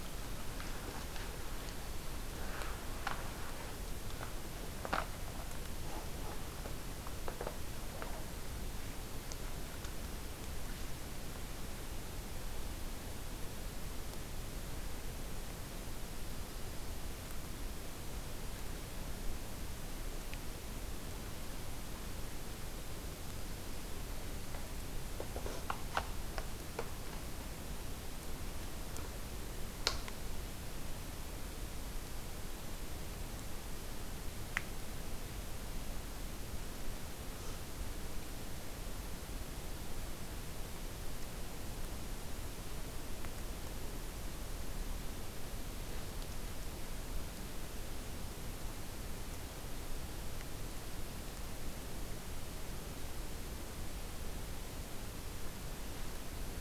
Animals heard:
forest ambience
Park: Acadia National Park